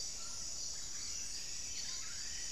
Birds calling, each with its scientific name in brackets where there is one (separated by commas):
Black-faced Cotinga (Conioptilon mcilhennyi), Buff-breasted Wren (Cantorchilus leucotis)